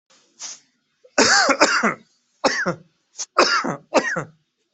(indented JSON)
{
  "expert_labels": [
    {
      "quality": "ok",
      "cough_type": "dry",
      "dyspnea": false,
      "wheezing": false,
      "stridor": false,
      "choking": false,
      "congestion": false,
      "nothing": true,
      "diagnosis": "COVID-19",
      "severity": "mild"
    }
  ],
  "age": 35,
  "gender": "male",
  "respiratory_condition": false,
  "fever_muscle_pain": false,
  "status": "healthy"
}